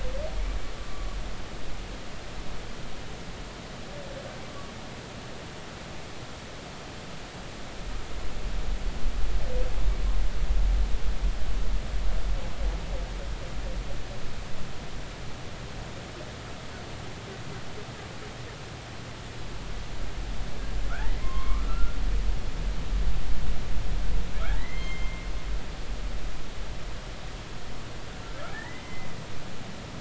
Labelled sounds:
0.8	1.1	humpback whale, 1.1 to 1.2 kHz
20.9	22.0	humpback whale, 0.96 to 3.3 kHz
24.6	25.2	humpback whale, 1.8 to 6.4 kHz
28.5	29.1	humpback whale, 1.6 to 2.2 kHz

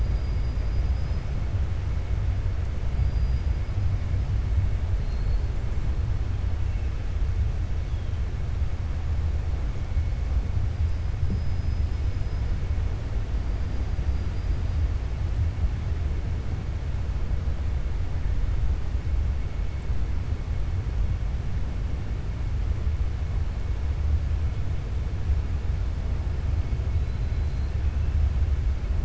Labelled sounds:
0.0	1.3	killer whale, 4.2 to 5.8 kHz
4.9	5.4	killer whale, 4.1 to 5.0 kHz
11.2	12.4	killer whale, 4.2 to 5.9 kHz

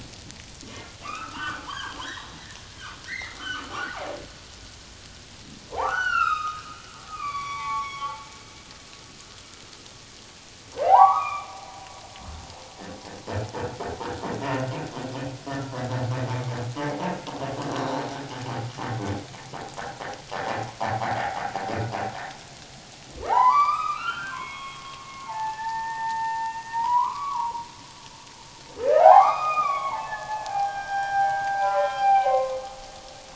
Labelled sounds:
1.0	2.4	humpback whale, 0.84 to 3.9 kHz
3.1	4.2	humpback whale, 0.78 to 4.3 kHz
5.7	6.6	humpback whale, 0.78 to 6.0 kHz
7.1	8.1	humpback whale, 0.81 to 4.7 kHz
10.7	11.5	humpback whale, 0.78 to 3.8 kHz
23.1	27.6	humpback whale, 0.78 to 4.9 kHz
28.9	32.6	humpback whale, 0.78 to 5.6 kHz

